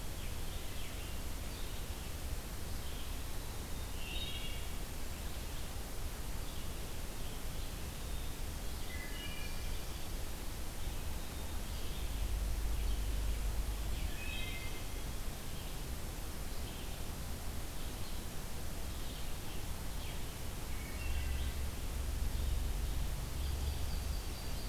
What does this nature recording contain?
Red-eyed Vireo, Wood Thrush, Yellow-rumped Warbler